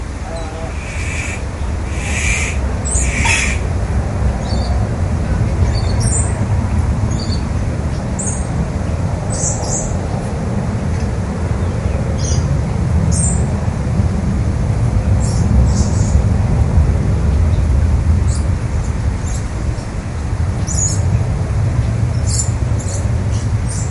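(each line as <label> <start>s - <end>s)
The loud background noise of air circulating indoors at a zoo repeats. 0.0s - 23.9s
A hyena makes a short whooping sound at medium volume indoors. 0.2s - 0.7s
A bird screams repeatedly indoors at medium volume. 0.8s - 4.2s
A bird tweets repeatedly at medium volume indoors. 4.2s - 10.0s
A bird tweets repeatedly at medium volume indoors. 12.0s - 13.6s
A bird tweets repeatedly at medium volume indoors. 15.1s - 16.3s
A bird tweets repeatedly at medium volume indoors. 18.2s - 23.9s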